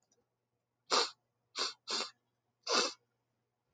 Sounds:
Sniff